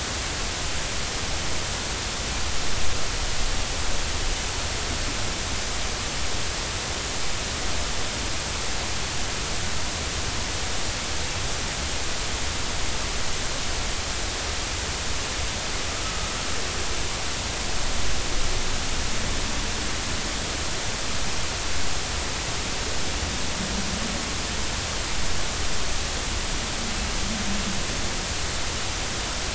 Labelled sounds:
16.0	16.3	humpback whale, 1.2 to 1.3 kHz

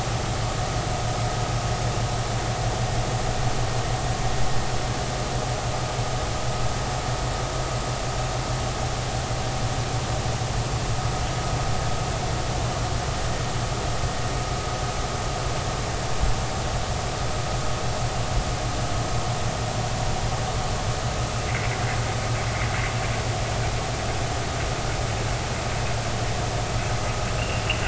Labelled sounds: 21.5	21.7	killer whale, Bigg's (transient), 2.0 to 2.4 kHz

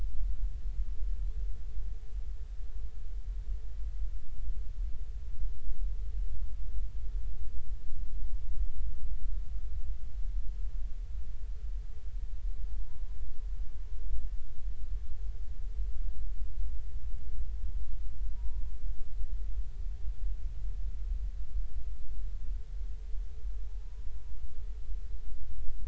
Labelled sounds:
12.7	13.2	humpback whale, 0.80 to 1.1 kHz
18.3	18.6	humpback whale, 0.90 to 1.0 kHz

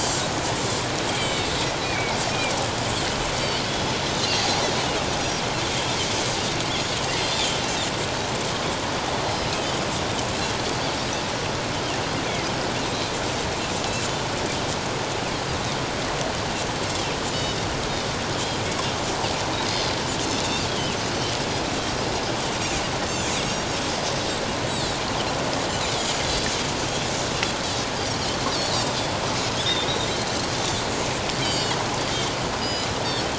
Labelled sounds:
1.1	2.2	Pacific white-sided dolphin, 2.1 to 3.3 kHz
5.2	5.4	Pacific white-sided dolphin, 4.7 to 5.0 kHz
7.3	7.6	Pacific white-sided dolphin, 3.0 to 3.7 kHz
20.3	21.0	Pacific white-sided dolphin, 2.5 to 3.4 kHz
26.2	26.5	Pacific white-sided dolphin, 4.6 to 4.8 kHz
31.4	32.9	Pacific white-sided dolphin, 2.8 to 7.7 kHz

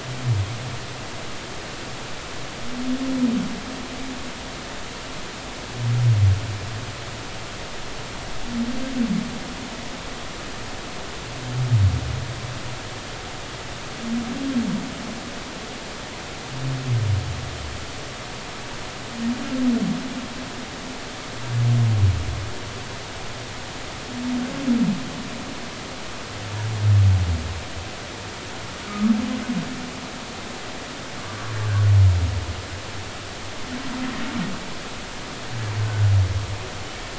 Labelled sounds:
29.9	30.1	humpback whale, 1.2 to 1.3 kHz
35.8	36.1	humpback whale, 1.4 to 1.6 kHz

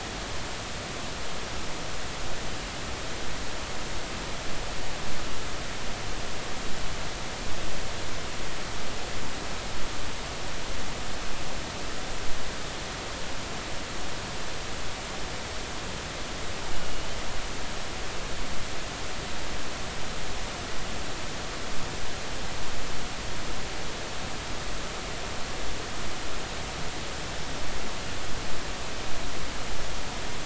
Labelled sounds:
16.8	17.1	killer whale, 2.8 to 3.0 kHz

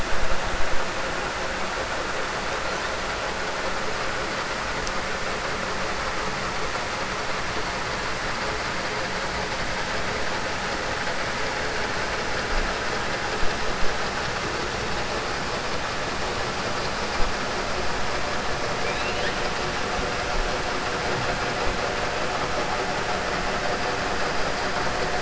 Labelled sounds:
18.8	19.4	killer whale, 1.6 to 4.2 kHz

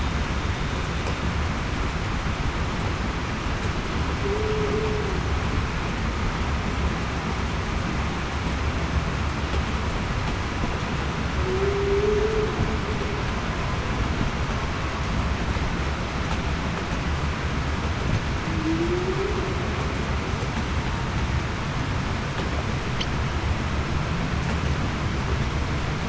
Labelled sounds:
4.2	4.7	humpback whale, 0.38 to 0.47 kHz
11.4	12.5	humpback whale, 0.35 to 0.47 kHz
18.5	19.3	humpback whale, 0.28 to 0.45 kHz

